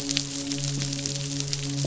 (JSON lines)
{"label": "biophony, midshipman", "recorder": "SoundTrap 500"}